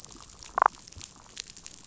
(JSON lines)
{"label": "biophony, damselfish", "recorder": "SoundTrap 500"}